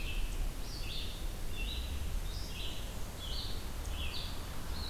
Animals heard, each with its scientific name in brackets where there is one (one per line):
Red-eyed Vireo (Vireo olivaceus)
Black-and-white Warbler (Mniotilta varia)